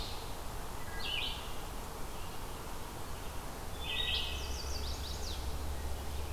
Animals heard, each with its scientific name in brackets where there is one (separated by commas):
Red-eyed Vireo (Vireo olivaceus), Chestnut-sided Warbler (Setophaga pensylvanica), Wood Thrush (Hylocichla mustelina)